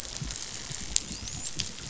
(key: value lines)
label: biophony, dolphin
recorder: SoundTrap 500